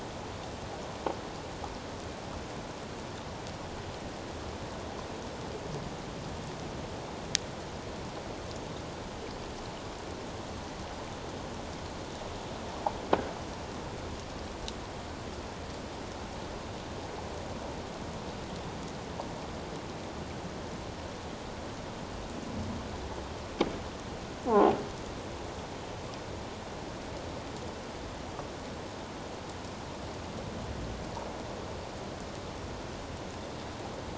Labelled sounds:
24.5	24.7	croaking sound likely from a nearby submerged object, 0.78 to 1.2 kHz

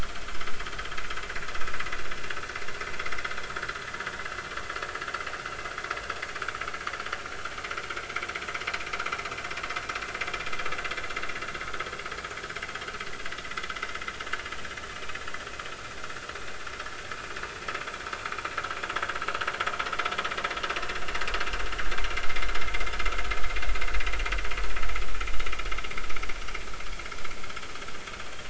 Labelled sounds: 22.2	22.5	vessel noise, 2.0 to 2.2 kHz

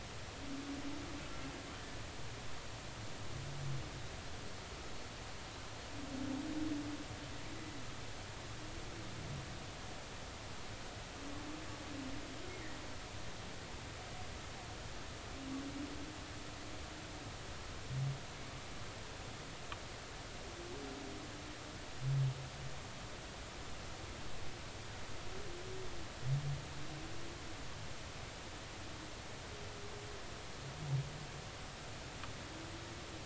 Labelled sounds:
12.5	12.8	killer whale, Bigg's (transient), 1.8 to 2.2 kHz

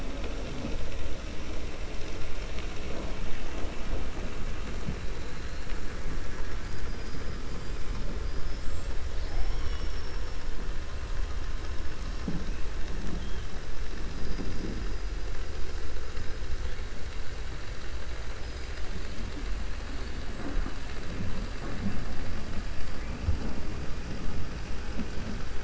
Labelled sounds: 6.6	7.4	killer whale, 4.3 to 5.1 kHz

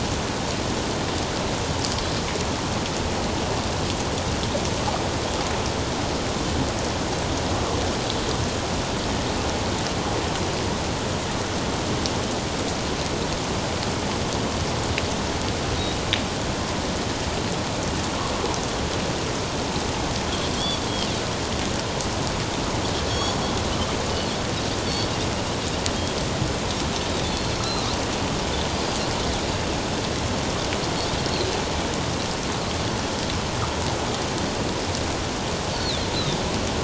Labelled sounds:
23.1	23.4	Pacific white-sided dolphin, 3.2 to 7.0 kHz
27.3	27.6	Pacific white-sided dolphin, 4.1 to 4.4 kHz
28.7	29.0	Pacific white-sided dolphin, 4.7 to 4.9 kHz
35.7	36.5	Pacific white-sided dolphin, 3.3 to 4.7 kHz

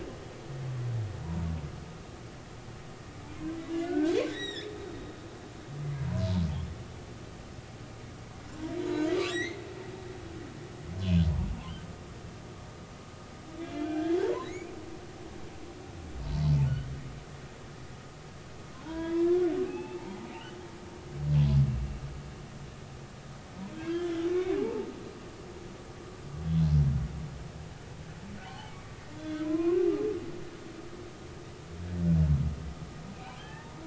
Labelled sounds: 1.2	1.5	humpback whale, 0.90 to 1.0 kHz
3.8	4.8	humpback whale, 1.4 to 7.7 kHz
9.3	9.6	humpback whale, 1.6 to 6.3 kHz
13.6	14.7	humpback whale, 1.5 to 4.3 kHz
18.8	20.2	humpback whale, 0.80 to 3.4 kHz
23.7	24.9	humpback whale, 0.80 to 3.8 kHz
28.4	29.8	humpback whale, 0.80 to 3.5 kHz
33.4	33.8	humpback whale, 0.80 to 1.9 kHz

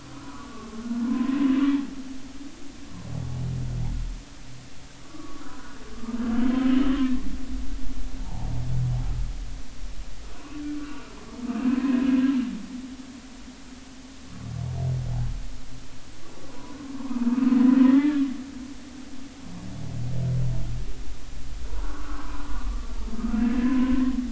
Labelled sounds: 0.0	1.3	humpback whale, 0.93 to 1.5 kHz
5.0	5.4	humpback whale, 1.1 to 1.3 kHz
6.4	7.3	humpback whale, 1.7 to 3.3 kHz
8.2	8.5	humpback whale, 0.80 to 0.99 kHz
10.3	12.0	humpback whale, 0.96 to 2.8 kHz
16.4	16.8	humpback whale, 0.93 to 1.2 kHz
17.3	17.5	humpback whale, 1.2 to 1.3 kHz
17.8	18.2	humpback whale, 1.6 to 2.1 kHz
21.8	22.9	humpback whale, 0.93 to 1.6 kHz
23.3	24.1	humpback whale, 0.96 to 2.8 kHz

